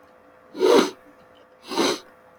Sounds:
Sneeze